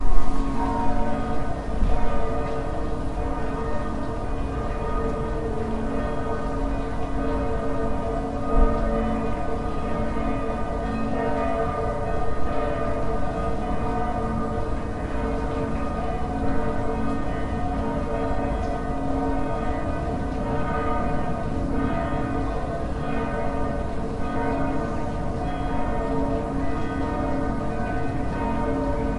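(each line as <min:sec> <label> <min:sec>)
0:00.0 Church bells ring repeatedly in the distance. 0:29.2
0:00.0 Water flowing in the distance. 0:29.2
0:00.0 White noise from outdoors with background voices. 0:29.2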